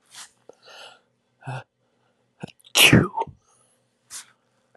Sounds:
Sneeze